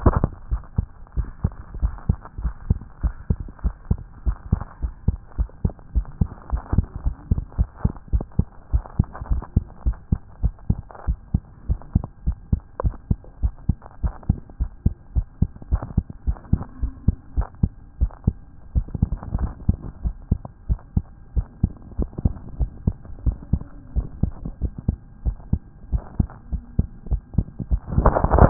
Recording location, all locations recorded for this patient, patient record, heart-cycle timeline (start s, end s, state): tricuspid valve (TV)
aortic valve (AV)+pulmonary valve (PV)+tricuspid valve (TV)+mitral valve (MV)
#Age: Child
#Sex: Male
#Height: 99.0 cm
#Weight: 13.6 kg
#Pregnancy status: False
#Murmur: Absent
#Murmur locations: nan
#Most audible location: nan
#Systolic murmur timing: nan
#Systolic murmur shape: nan
#Systolic murmur grading: nan
#Systolic murmur pitch: nan
#Systolic murmur quality: nan
#Diastolic murmur timing: nan
#Diastolic murmur shape: nan
#Diastolic murmur grading: nan
#Diastolic murmur pitch: nan
#Diastolic murmur quality: nan
#Outcome: Normal
#Campaign: 2014 screening campaign
0.00	0.42	unannotated
0.42	0.50	diastole
0.50	0.62	S1
0.62	0.76	systole
0.76	0.86	S2
0.86	1.16	diastole
1.16	1.28	S1
1.28	1.42	systole
1.42	1.52	S2
1.52	1.80	diastole
1.80	1.94	S1
1.94	2.08	systole
2.08	2.18	S2
2.18	2.42	diastole
2.42	2.54	S1
2.54	2.68	systole
2.68	2.78	S2
2.78	3.02	diastole
3.02	3.14	S1
3.14	3.28	systole
3.28	3.38	S2
3.38	3.64	diastole
3.64	3.74	S1
3.74	3.90	systole
3.90	3.98	S2
3.98	4.26	diastole
4.26	4.36	S1
4.36	4.50	systole
4.50	4.60	S2
4.60	4.82	diastole
4.82	4.94	S1
4.94	5.06	systole
5.06	5.18	S2
5.18	5.38	diastole
5.38	5.48	S1
5.48	5.64	systole
5.64	5.72	S2
5.72	5.94	diastole
5.94	6.06	S1
6.06	6.20	systole
6.20	6.28	S2
6.28	6.52	diastole
6.52	6.62	S1
6.62	6.74	systole
6.74	6.86	S2
6.86	7.04	diastole
7.04	7.16	S1
7.16	7.30	systole
7.30	7.42	S2
7.42	7.58	diastole
7.58	7.68	S1
7.68	7.84	systole
7.84	7.92	S2
7.92	8.12	diastole
8.12	8.24	S1
8.24	8.38	systole
8.38	8.46	S2
8.46	8.72	diastole
8.72	8.84	S1
8.84	8.98	systole
8.98	9.06	S2
9.06	9.30	diastole
9.30	9.42	S1
9.42	9.54	systole
9.54	9.64	S2
9.64	9.86	diastole
9.86	9.96	S1
9.96	10.10	systole
10.10	10.20	S2
10.20	10.42	diastole
10.42	10.54	S1
10.54	10.68	systole
10.68	10.78	S2
10.78	11.06	diastole
11.06	11.18	S1
11.18	11.32	systole
11.32	11.42	S2
11.42	11.68	diastole
11.68	11.80	S1
11.80	11.94	systole
11.94	12.04	S2
12.04	12.26	diastole
12.26	12.36	S1
12.36	12.52	systole
12.52	12.60	S2
12.60	12.84	diastole
12.84	12.94	S1
12.94	13.08	systole
13.08	13.18	S2
13.18	13.42	diastole
13.42	13.54	S1
13.54	13.68	systole
13.68	13.76	S2
13.76	14.02	diastole
14.02	14.14	S1
14.14	14.28	systole
14.28	14.38	S2
14.38	14.60	diastole
14.60	14.70	S1
14.70	14.84	systole
14.84	14.94	S2
14.94	15.14	diastole
15.14	15.26	S1
15.26	15.40	systole
15.40	15.50	S2
15.50	15.70	diastole
15.70	15.82	S1
15.82	15.96	systole
15.96	16.04	S2
16.04	16.26	diastole
16.26	16.38	S1
16.38	16.52	systole
16.52	16.62	S2
16.62	16.82	diastole
16.82	16.92	S1
16.92	17.06	systole
17.06	17.16	S2
17.16	17.36	diastole
17.36	17.48	S1
17.48	17.62	systole
17.62	17.70	S2
17.70	18.00	diastole
18.00	18.12	S1
18.12	18.26	systole
18.26	18.36	S2
18.36	18.74	diastole
18.74	18.86	S1
18.86	19.00	systole
19.00	19.10	S2
19.10	19.38	diastole
19.38	19.52	S1
19.52	19.68	systole
19.68	19.78	S2
19.78	20.04	diastole
20.04	20.14	S1
20.14	20.30	systole
20.30	20.40	S2
20.40	20.68	diastole
20.68	20.80	S1
20.80	20.94	systole
20.94	21.04	S2
21.04	21.36	diastole
21.36	21.46	S1
21.46	21.62	systole
21.62	21.72	S2
21.72	21.98	diastole
21.98	22.10	S1
22.10	22.24	systole
22.24	22.34	S2
22.34	22.58	diastole
22.58	22.70	S1
22.70	22.86	systole
22.86	22.96	S2
22.96	23.24	diastole
23.24	23.36	S1
23.36	23.52	systole
23.52	23.62	S2
23.62	23.96	diastole
23.96	24.08	S1
24.08	24.22	systole
24.22	24.32	S2
24.32	24.62	diastole
24.62	24.72	S1
24.72	24.86	systole
24.86	24.98	S2
24.98	25.24	diastole
25.24	25.36	S1
25.36	25.52	systole
25.52	25.60	S2
25.60	25.92	diastole
25.92	26.02	S1
26.02	26.18	systole
26.18	26.28	S2
26.28	26.52	diastole
26.52	26.62	S1
26.62	26.78	systole
26.78	26.86	S2
26.86	27.10	diastole
27.10	27.22	S1
27.22	27.36	systole
27.36	27.46	S2
27.46	27.72	diastole
27.72	28.50	unannotated